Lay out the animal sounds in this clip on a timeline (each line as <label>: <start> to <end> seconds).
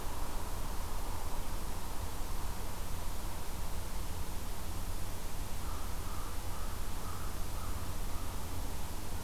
American Crow (Corvus brachyrhynchos): 5.4 to 8.4 seconds